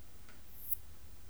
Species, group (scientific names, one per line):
Poecilimon affinis
Orthoptera